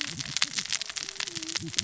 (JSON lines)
{"label": "biophony, cascading saw", "recorder": "SoundTrap 600 or HydroMoth"}